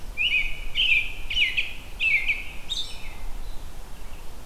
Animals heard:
American Robin (Turdus migratorius)

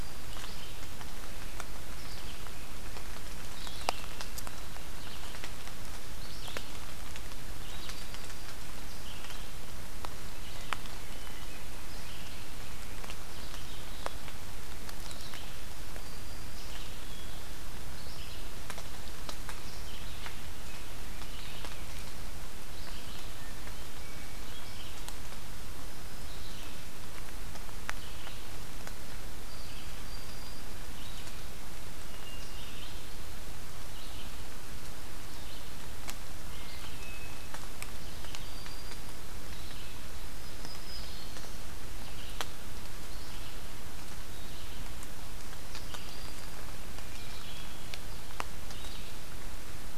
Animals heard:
Black-throated Green Warbler (Setophaga virens)
Hermit Thrush (Catharus guttatus)
Red-eyed Vireo (Vireo olivaceus)

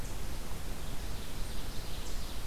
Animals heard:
Ovenbird (Seiurus aurocapilla)

